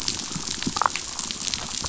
{"label": "biophony, damselfish", "recorder": "SoundTrap 500"}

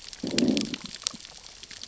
{"label": "biophony, growl", "recorder": "SoundTrap 600 or HydroMoth"}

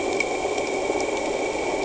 {"label": "anthrophony, boat engine", "recorder": "HydroMoth"}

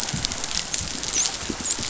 {"label": "biophony, dolphin", "recorder": "SoundTrap 500"}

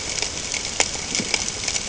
{"label": "ambient", "recorder": "HydroMoth"}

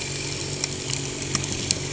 {"label": "anthrophony, boat engine", "recorder": "HydroMoth"}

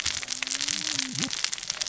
{"label": "biophony, cascading saw", "recorder": "SoundTrap 600 or HydroMoth"}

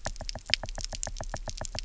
{"label": "biophony, knock", "recorder": "SoundTrap 300"}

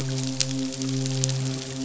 {"label": "biophony, midshipman", "recorder": "SoundTrap 500"}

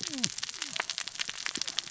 {"label": "biophony, cascading saw", "recorder": "SoundTrap 600 or HydroMoth"}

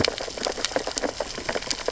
{"label": "biophony, sea urchins (Echinidae)", "recorder": "SoundTrap 600 or HydroMoth"}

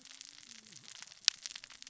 {"label": "biophony, cascading saw", "recorder": "SoundTrap 600 or HydroMoth"}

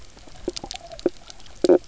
{"label": "biophony, knock croak", "recorder": "SoundTrap 300"}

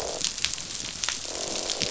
{"label": "biophony, croak", "recorder": "SoundTrap 500"}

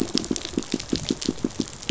{"label": "biophony, pulse", "recorder": "SoundTrap 500"}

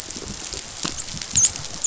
{"label": "biophony, dolphin", "recorder": "SoundTrap 500"}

